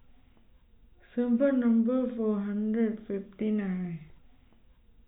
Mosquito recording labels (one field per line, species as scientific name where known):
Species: no mosquito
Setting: cup